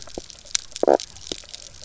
{"label": "biophony, knock croak", "recorder": "SoundTrap 300"}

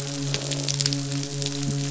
{"label": "biophony, midshipman", "recorder": "SoundTrap 500"}
{"label": "biophony, croak", "recorder": "SoundTrap 500"}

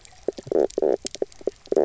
{"label": "biophony, knock croak", "recorder": "SoundTrap 300"}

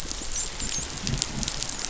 {"label": "biophony, dolphin", "recorder": "SoundTrap 500"}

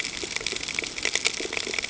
{"label": "ambient", "recorder": "HydroMoth"}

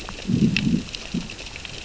{"label": "biophony, growl", "recorder": "SoundTrap 600 or HydroMoth"}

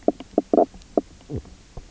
{"label": "biophony, knock croak", "recorder": "SoundTrap 300"}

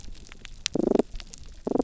{"label": "biophony", "recorder": "SoundTrap 300"}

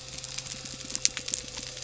{"label": "anthrophony, boat engine", "recorder": "SoundTrap 300"}
{"label": "biophony", "recorder": "SoundTrap 300"}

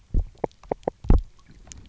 {"label": "biophony, knock", "recorder": "SoundTrap 300"}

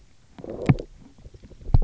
{"label": "biophony, low growl", "recorder": "SoundTrap 300"}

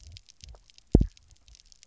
{"label": "biophony, double pulse", "recorder": "SoundTrap 300"}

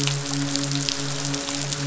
{"label": "biophony, midshipman", "recorder": "SoundTrap 500"}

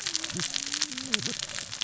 {"label": "biophony, cascading saw", "recorder": "SoundTrap 600 or HydroMoth"}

